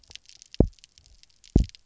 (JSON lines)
{"label": "biophony, double pulse", "recorder": "SoundTrap 300"}